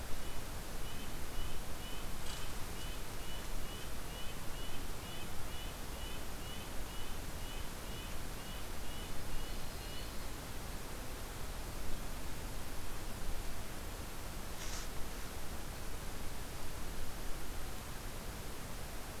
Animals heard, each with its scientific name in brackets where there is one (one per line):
Red-breasted Nuthatch (Sitta canadensis)
Yellow-rumped Warbler (Setophaga coronata)